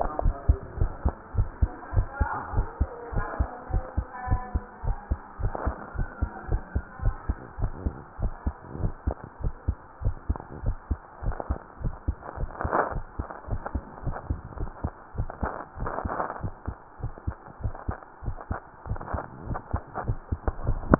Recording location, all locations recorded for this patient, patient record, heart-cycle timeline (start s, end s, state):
tricuspid valve (TV)
aortic valve (AV)+pulmonary valve (PV)+tricuspid valve (TV)+mitral valve (MV)
#Age: Child
#Sex: Female
#Height: 127.0 cm
#Weight: 22.2 kg
#Pregnancy status: False
#Murmur: Absent
#Murmur locations: nan
#Most audible location: nan
#Systolic murmur timing: nan
#Systolic murmur shape: nan
#Systolic murmur grading: nan
#Systolic murmur pitch: nan
#Systolic murmur quality: nan
#Diastolic murmur timing: nan
#Diastolic murmur shape: nan
#Diastolic murmur grading: nan
#Diastolic murmur pitch: nan
#Diastolic murmur quality: nan
#Outcome: Abnormal
#Campaign: 2015 screening campaign
0.00	0.20	unannotated
0.20	0.36	S1
0.36	0.44	systole
0.44	0.56	S2
0.56	0.76	diastole
0.76	0.92	S1
0.92	1.00	systole
1.00	1.14	S2
1.14	1.34	diastole
1.34	1.50	S1
1.50	1.58	systole
1.58	1.72	S2
1.72	1.92	diastole
1.92	2.08	S1
2.08	2.16	systole
2.16	2.30	S2
2.30	2.52	diastole
2.52	2.66	S1
2.66	2.76	systole
2.76	2.90	S2
2.90	3.12	diastole
3.12	3.26	S1
3.26	3.38	systole
3.38	3.48	S2
3.48	3.72	diastole
3.72	3.84	S1
3.84	3.96	systole
3.96	4.06	S2
4.06	4.28	diastole
4.28	4.42	S1
4.42	4.50	systole
4.50	4.64	S2
4.64	4.84	diastole
4.84	4.98	S1
4.98	5.10	systole
5.10	5.20	S2
5.20	5.40	diastole
5.40	5.54	S1
5.54	5.64	systole
5.64	5.76	S2
5.76	5.96	diastole
5.96	6.10	S1
6.10	6.18	systole
6.18	6.30	S2
6.30	6.50	diastole
6.50	6.64	S1
6.64	6.74	systole
6.74	6.84	S2
6.84	7.02	diastole
7.02	7.18	S1
7.18	7.28	systole
7.28	7.38	S2
7.38	7.60	diastole
7.60	7.74	S1
7.74	7.84	systole
7.84	7.96	S2
7.96	8.20	diastole
8.20	8.34	S1
8.34	8.43	systole
8.43	8.56	S2
8.56	8.80	diastole
8.80	8.94	S1
8.94	9.05	systole
9.05	9.16	S2
9.16	9.42	diastole
9.42	9.54	S1
9.54	9.64	systole
9.64	9.78	S2
9.78	10.02	diastole
10.02	10.18	S1
10.18	10.26	systole
10.26	10.40	S2
10.40	10.62	diastole
10.62	10.78	S1
10.78	10.88	systole
10.88	10.98	S2
10.98	11.24	diastole
11.24	11.38	S1
11.38	11.49	systole
11.49	11.60	S2
11.60	11.82	diastole
11.82	11.94	S1
11.94	12.04	systole
12.04	12.16	S2
12.16	20.99	unannotated